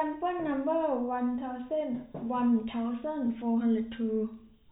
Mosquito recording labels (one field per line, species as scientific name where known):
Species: no mosquito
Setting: cup